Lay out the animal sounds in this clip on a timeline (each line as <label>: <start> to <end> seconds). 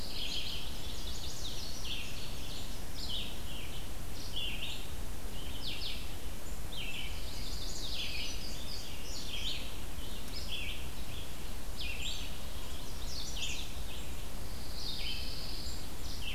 Red-eyed Vireo (Vireo olivaceus): 0.0 to 16.3 seconds
Chestnut-sided Warbler (Setophaga pensylvanica): 0.5 to 1.6 seconds
Ovenbird (Seiurus aurocapilla): 1.1 to 3.0 seconds
Chestnut-sided Warbler (Setophaga pensylvanica): 6.9 to 8.0 seconds
Pine Warbler (Setophaga pinus): 7.1 to 8.4 seconds
Indigo Bunting (Passerina cyanea): 7.7 to 9.8 seconds
Chestnut-sided Warbler (Setophaga pensylvanica): 12.6 to 13.8 seconds
Pine Warbler (Setophaga pinus): 14.4 to 16.0 seconds